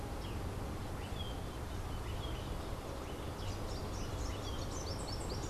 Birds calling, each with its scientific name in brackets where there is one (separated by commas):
Rufous-capped Warbler (Basileuterus rufifrons), Melodious Blackbird (Dives dives)